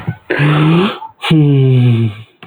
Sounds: Sigh